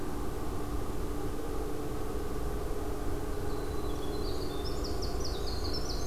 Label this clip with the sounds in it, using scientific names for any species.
Troglodytes hiemalis